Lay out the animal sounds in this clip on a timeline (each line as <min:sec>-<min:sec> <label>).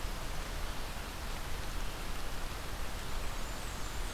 0:02.8-0:04.1 Blackburnian Warbler (Setophaga fusca)